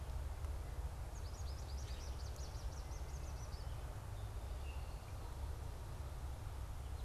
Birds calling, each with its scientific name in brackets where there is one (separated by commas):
American Goldfinch (Spinus tristis), Common Grackle (Quiscalus quiscula)